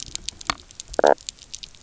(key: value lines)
label: biophony, knock croak
recorder: SoundTrap 300